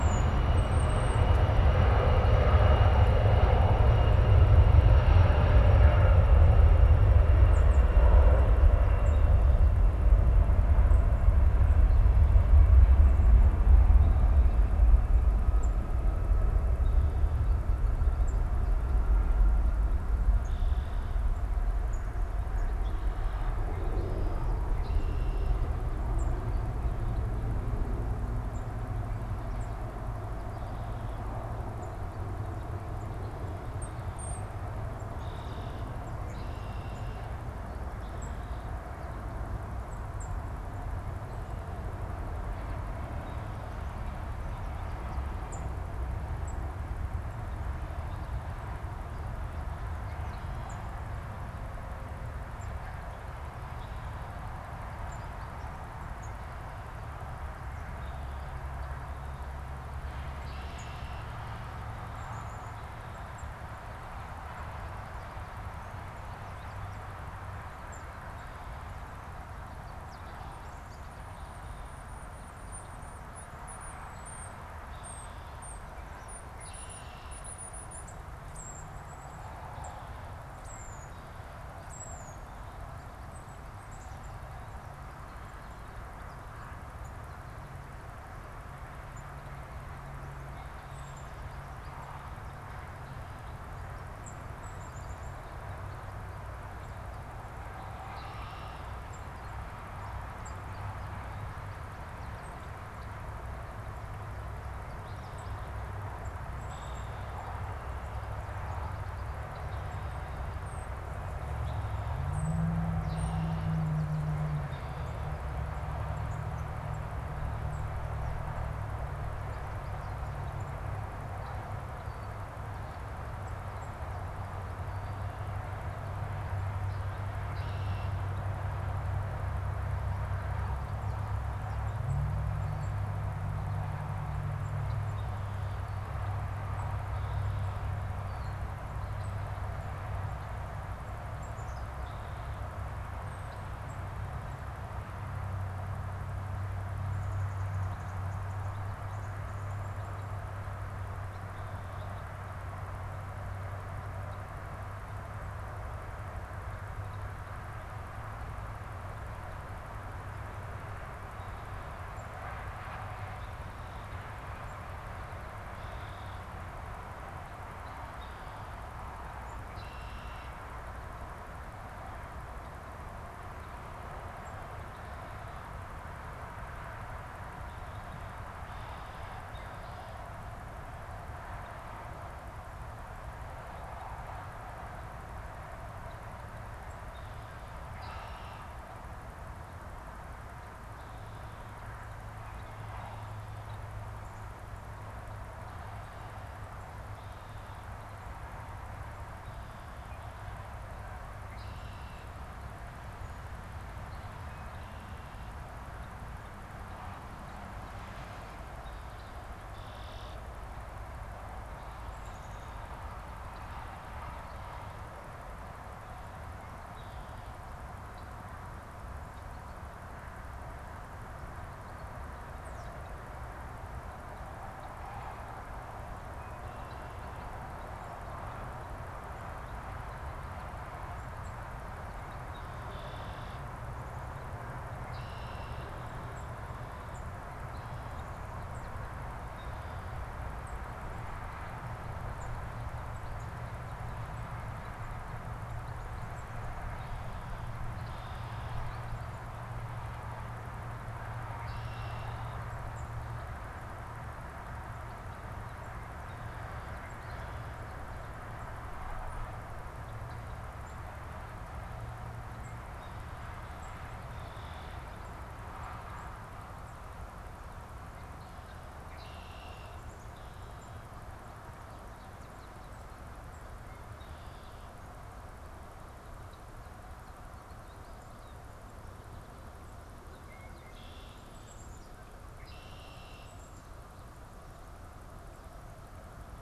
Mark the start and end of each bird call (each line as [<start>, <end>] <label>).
[0.00, 139.62] Tufted Titmouse (Baeolophus bicolor)
[20.32, 21.22] Red-winged Blackbird (Agelaius phoeniceus)
[24.62, 25.82] Red-winged Blackbird (Agelaius phoeniceus)
[34.92, 37.42] Red-winged Blackbird (Agelaius phoeniceus)
[97.82, 98.92] Red-winged Blackbird (Agelaius phoeniceus)
[106.52, 107.52] Red-winged Blackbird (Agelaius phoeniceus)
[112.92, 113.92] Red-winged Blackbird (Agelaius phoeniceus)
[114.52, 115.32] Red-winged Blackbird (Agelaius phoeniceus)
[127.42, 128.32] Red-winged Blackbird (Agelaius phoeniceus)
[141.32, 142.12] Black-capped Chickadee (Poecile atricapillus)
[142.02, 142.62] Red-winged Blackbird (Agelaius phoeniceus)
[165.62, 170.72] Red-winged Blackbird (Agelaius phoeniceus)
[177.62, 180.42] Red-winged Blackbird (Agelaius phoeniceus)
[187.82, 188.82] Red-winged Blackbird (Agelaius phoeniceus)
[192.42, 193.92] Red-winged Blackbird (Agelaius phoeniceus)
[201.42, 202.62] Red-winged Blackbird (Agelaius phoeniceus)
[208.72, 210.82] Red-winged Blackbird (Agelaius phoeniceus)
[212.02, 212.82] Black-capped Chickadee (Poecile atricapillus)
[216.72, 218.02] Red-winged Blackbird (Agelaius phoeniceus)
[226.12, 227.82] Red-winged Blackbird (Agelaius phoeniceus)
[231.32, 272.22] unidentified bird
[232.12, 236.32] Red-winged Blackbird (Agelaius phoeniceus)
[246.92, 249.02] Red-winged Blackbird (Agelaius phoeniceus)
[251.42, 252.82] Red-winged Blackbird (Agelaius phoeniceus)
[264.02, 265.32] Red-winged Blackbird (Agelaius phoeniceus)
[269.02, 270.12] Red-winged Blackbird (Agelaius phoeniceus)
[273.52, 275.12] Red-winged Blackbird (Agelaius phoeniceus)
[280.42, 283.72] Red-winged Blackbird (Agelaius phoeniceus)
[281.42, 282.62] Black-capped Chickadee (Poecile atricapillus)
[283.32, 284.22] Black-capped Chickadee (Poecile atricapillus)